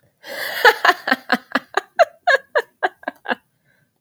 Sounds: Laughter